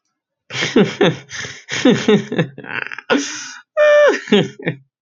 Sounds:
Laughter